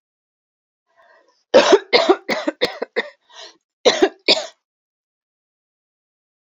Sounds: Cough